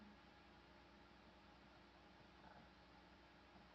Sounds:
Sniff